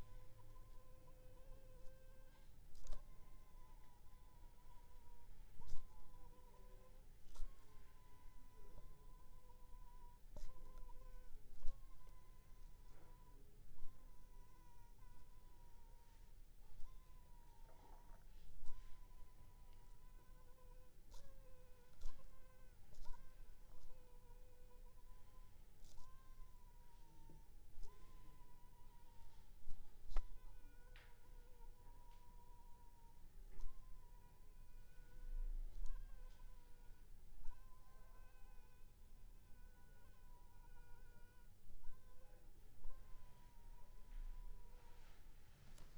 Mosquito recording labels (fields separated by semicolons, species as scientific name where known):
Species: mosquito; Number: one; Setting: cup